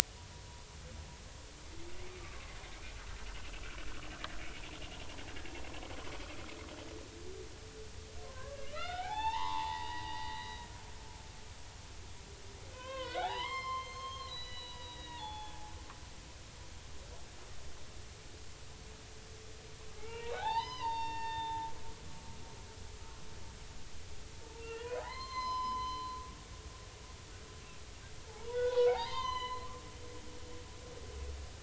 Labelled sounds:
2.2	2.6	humpback whale, 1.0 to 1.2 kHz
3.5	3.7	humpback whale, 2.6 to 2.8 kHz
8.2	10.7	humpback whale, 0.80 to 4.8 kHz
12.7	15.7	humpback whale, 0.80 to 6.5 kHz
20.0	21.7	humpback whale, 0.80 to 6.1 kHz
24.6	26.1	humpback whale, 0.80 to 6.3 kHz
28.3	29.7	humpback whale, 0.80 to 6.3 kHz

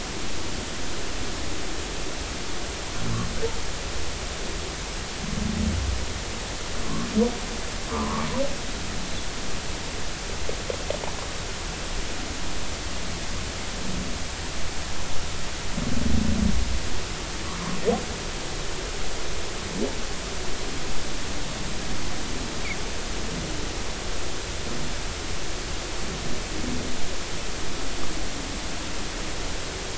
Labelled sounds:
7.9	8.3	humpback whale, 0.83 to 1.3 kHz

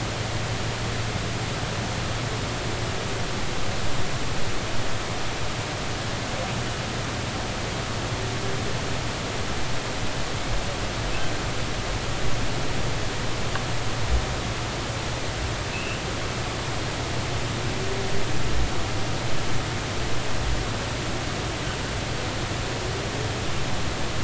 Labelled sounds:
15.7	16.0	humpback whale, 2.5 to 2.9 kHz

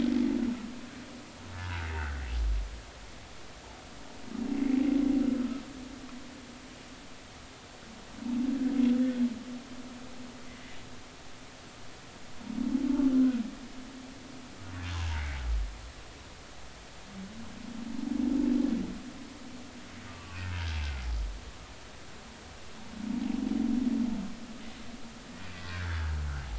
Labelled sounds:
1.5	2.2	humpback whale, 1.3 to 1.8 kHz
15.2	15.4	humpback whale, 1.8 to 2.3 kHz
20.1	20.4	humpback whale, 0.99 to 1.2 kHz
25.5	26.0	humpback whale, 1.3 to 2.1 kHz

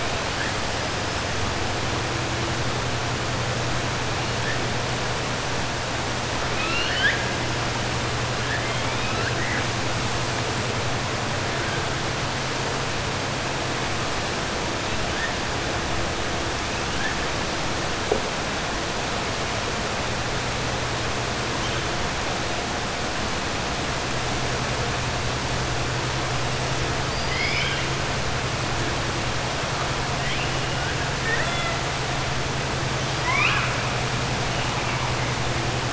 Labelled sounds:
6.5	7.2	killer whale, 1.3 to 5.1 kHz
8.4	9.7	killer whale, 0.94 to 3.2 kHz
27.0	27.9	killer whale, 1.6 to 5.2 kHz
31.1	31.8	killer whale, 0.67 to 4.0 kHz
33.1	33.7	killer whale, 1.0 to 5.0 kHz

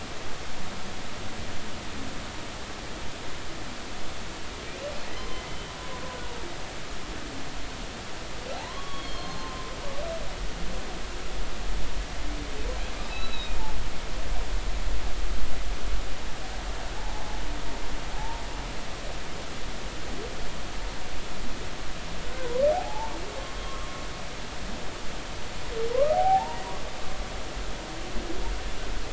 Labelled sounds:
5.2	5.4	humpback whale, 0.99 to 1.1 kHz
8.5	9.7	humpback whale, 0.80 to 4.4 kHz
13.1	13.6	humpback whale, 2.4 to 4.0 kHz
16.9	17.4	humpback whale, 0.80 to 0.96 kHz
18.1	18.4	humpback whale, 0.80 to 0.96 kHz
22.2	23.1	humpback whale, 0.80 to 1.6 kHz
25.9	26.6	humpback whale, 0.80 to 1.3 kHz

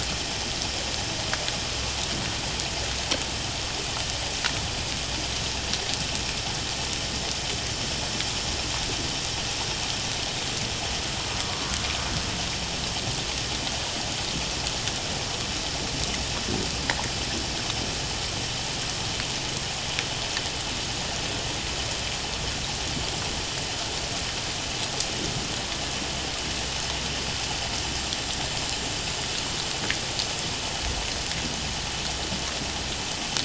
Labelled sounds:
11.5	11.7	humpback whale, 1.0 to 1.2 kHz

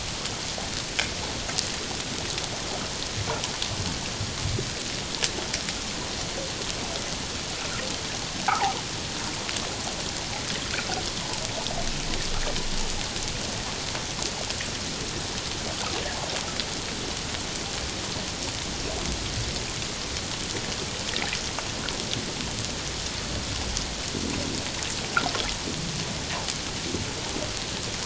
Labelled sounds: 8.4	8.8	fish, 0.78 to 1.1 kHz

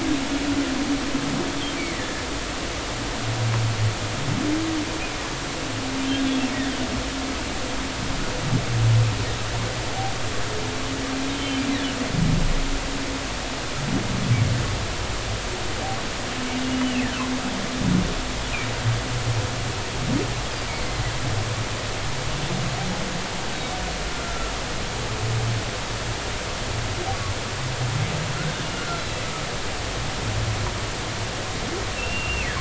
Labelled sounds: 1.7	2.1	humpback whale, 1.7 to 2.4 kHz
11.3	11.6	humpback whale, 2.9 to 3.2 kHz
16.8	17.1	humpback whale, 2.5 to 3.1 kHz
24.1	24.5	humpback whale, 1.3 to 1.4 kHz
28.6	29.0	humpback whale, 1.3 to 2.9 kHz
32.0	32.5	humpback whale, 2.4 to 2.8 kHz

